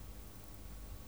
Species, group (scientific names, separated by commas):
Poecilimon paros, Orthoptera